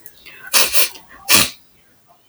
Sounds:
Sniff